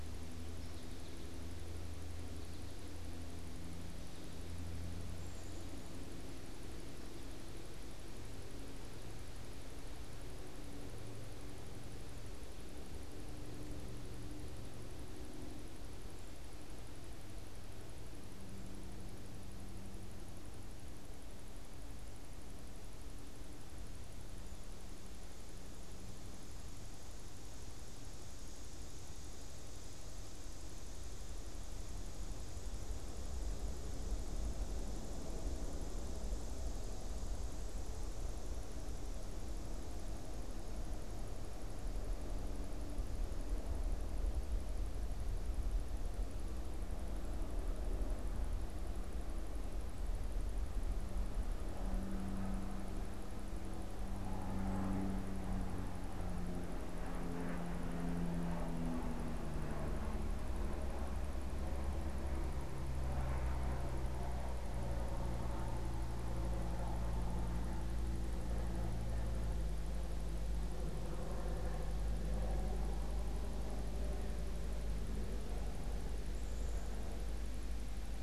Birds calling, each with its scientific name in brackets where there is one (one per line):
American Goldfinch (Spinus tristis)
unidentified bird